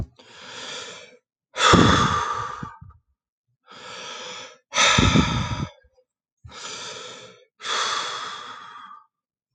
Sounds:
Sigh